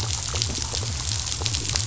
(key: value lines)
label: biophony
recorder: SoundTrap 500